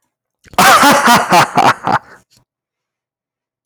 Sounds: Laughter